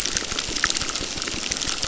{"label": "biophony, crackle", "recorder": "SoundTrap 600"}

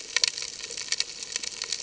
{"label": "ambient", "recorder": "HydroMoth"}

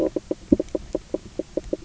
{"label": "biophony, knock croak", "recorder": "SoundTrap 300"}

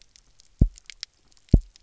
{"label": "biophony, double pulse", "recorder": "SoundTrap 300"}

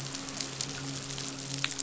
{"label": "biophony, midshipman", "recorder": "SoundTrap 500"}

